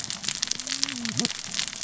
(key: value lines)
label: biophony, cascading saw
recorder: SoundTrap 600 or HydroMoth